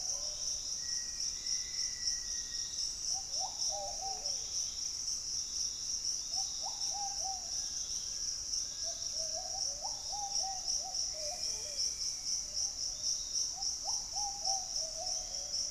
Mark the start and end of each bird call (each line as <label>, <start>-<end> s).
Black-faced Antthrush (Formicarius analis), 0.0-3.1 s
Ruddy Pigeon (Patagioenas subvinacea), 0.0-15.7 s
Hauxwell's Thrush (Turdus hauxwelli), 0.8-2.5 s
Pygmy Antwren (Myrmotherula brachyura), 3.9-9.5 s
Fasciated Antshrike (Cymbilaimus lineatus), 6.7-9.8 s
Piratic Flycatcher (Legatus leucophaius), 9.8-15.7 s
Black-faced Antthrush (Formicarius analis), 10.1-12.9 s
White-throated Woodpecker (Piculus leucolaemus), 11.0-12.6 s